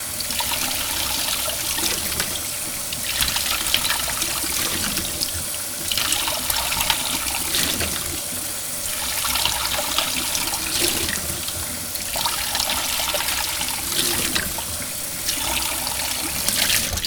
Is water flowing?
yes